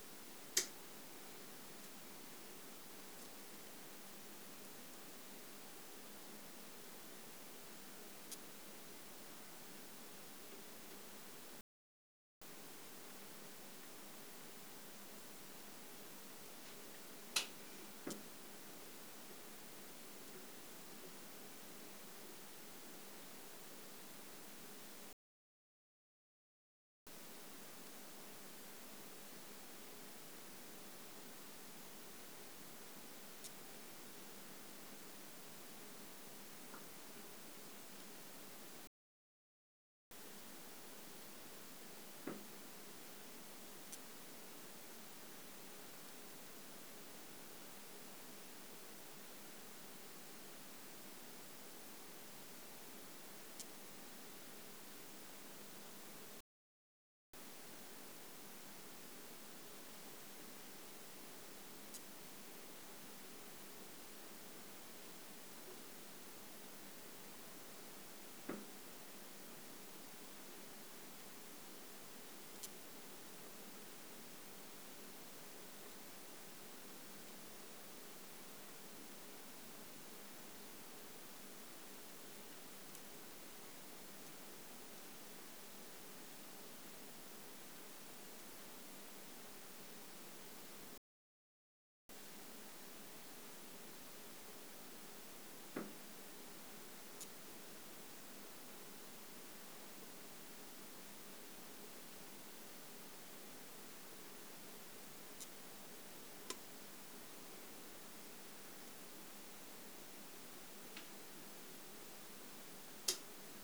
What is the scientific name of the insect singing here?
Poecilimon thoracicus